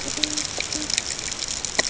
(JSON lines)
{"label": "ambient", "recorder": "HydroMoth"}